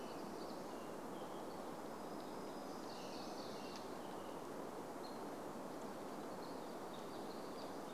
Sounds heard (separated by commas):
American Robin song, Hammond's Flycatcher call, warbler song